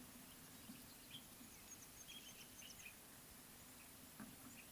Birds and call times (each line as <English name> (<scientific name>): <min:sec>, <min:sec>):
Mouse-colored Penduline-Tit (Anthoscopus musculus): 0:01.8, 0:02.6